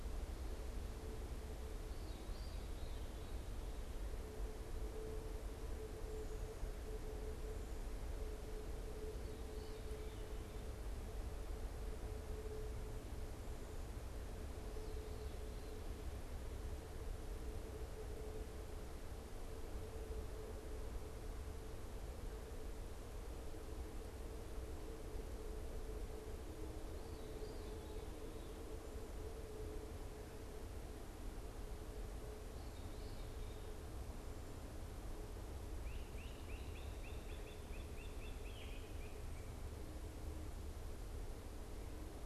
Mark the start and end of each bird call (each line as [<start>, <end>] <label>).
[1.38, 3.68] Veery (Catharus fuscescens)
[9.08, 33.88] Veery (Catharus fuscescens)
[35.68, 39.78] Great Crested Flycatcher (Myiarchus crinitus)
[38.38, 38.88] Veery (Catharus fuscescens)